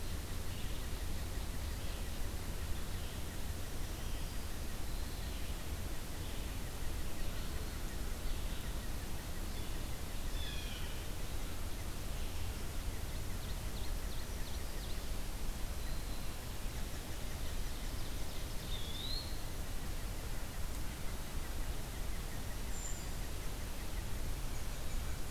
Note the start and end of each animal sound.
0.0s-10.7s: unidentified call
3.7s-4.5s: Black-capped Chickadee (Poecile atricapillus)
10.1s-11.1s: Blue Jay (Cyanocitta cristata)
13.1s-15.1s: Ovenbird (Seiurus aurocapilla)
15.5s-16.5s: Black-throated Green Warbler (Setophaga virens)
16.8s-19.1s: Ovenbird (Seiurus aurocapilla)
18.5s-19.6s: Eastern Wood-Pewee (Contopus virens)
19.5s-25.3s: unidentified call
22.5s-23.3s: Brown Creeper (Certhia americana)

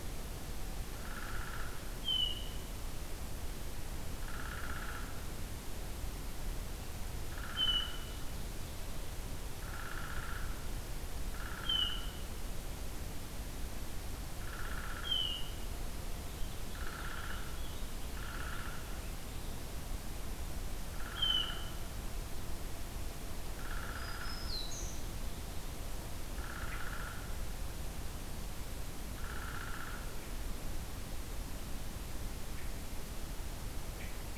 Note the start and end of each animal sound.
1.0s-1.8s: Downy Woodpecker (Dryobates pubescens)
2.0s-2.6s: Hermit Thrush (Catharus guttatus)
4.2s-5.1s: Downy Woodpecker (Dryobates pubescens)
7.3s-8.0s: Downy Woodpecker (Dryobates pubescens)
7.5s-8.2s: Hermit Thrush (Catharus guttatus)
9.6s-10.5s: Downy Woodpecker (Dryobates pubescens)
11.3s-12.0s: Downy Woodpecker (Dryobates pubescens)
11.6s-12.2s: Hermit Thrush (Catharus guttatus)
14.4s-15.2s: Downy Woodpecker (Dryobates pubescens)
15.0s-15.6s: Hermit Thrush (Catharus guttatus)
15.9s-19.6s: Purple Finch (Haemorhous purpureus)
16.7s-17.6s: Downy Woodpecker (Dryobates pubescens)
18.0s-18.9s: Downy Woodpecker (Dryobates pubescens)
20.9s-21.8s: Downy Woodpecker (Dryobates pubescens)
21.1s-21.8s: Hermit Thrush (Catharus guttatus)
23.6s-24.5s: Downy Woodpecker (Dryobates pubescens)
23.9s-25.1s: Black-throated Green Warbler (Setophaga virens)
26.4s-27.3s: Downy Woodpecker (Dryobates pubescens)
29.2s-30.1s: Downy Woodpecker (Dryobates pubescens)

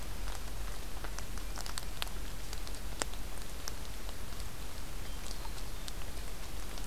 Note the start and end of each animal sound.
5.0s-6.0s: Hermit Thrush (Catharus guttatus)

